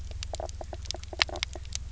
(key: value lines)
label: biophony, knock croak
recorder: SoundTrap 300